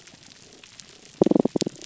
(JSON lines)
{"label": "biophony, damselfish", "recorder": "SoundTrap 300"}